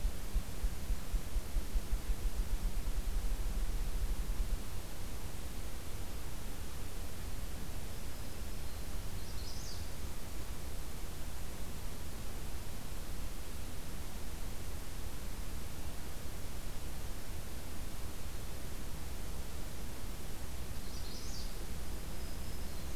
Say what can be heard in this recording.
Black-throated Green Warbler, Magnolia Warbler